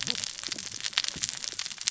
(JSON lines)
{"label": "biophony, cascading saw", "recorder": "SoundTrap 600 or HydroMoth"}